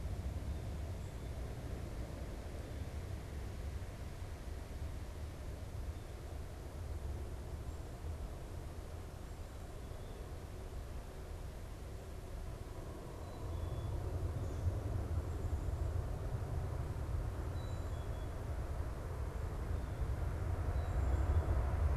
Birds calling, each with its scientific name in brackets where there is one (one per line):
Black-capped Chickadee (Poecile atricapillus)
Blue Jay (Cyanocitta cristata)